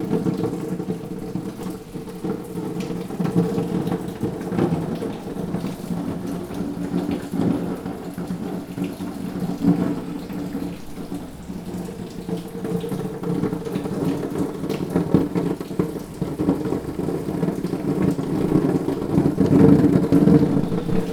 Can something other than rain be heard?
no